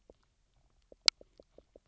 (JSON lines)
{"label": "biophony, knock croak", "recorder": "SoundTrap 300"}